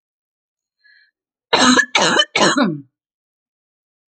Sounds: Cough